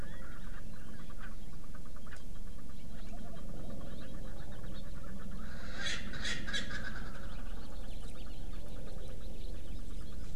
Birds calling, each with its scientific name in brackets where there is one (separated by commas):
Erckel's Francolin (Pternistis erckelii), House Finch (Haemorhous mexicanus)